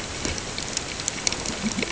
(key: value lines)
label: ambient
recorder: HydroMoth